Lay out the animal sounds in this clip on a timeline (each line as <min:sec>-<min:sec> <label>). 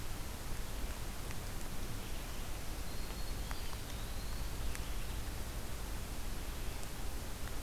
0:02.3-0:03.7 Black-throated Green Warbler (Setophaga virens)
0:03.1-0:05.2 Eastern Wood-Pewee (Contopus virens)